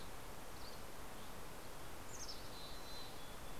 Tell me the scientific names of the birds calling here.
Empidonax oberholseri, Poecile gambeli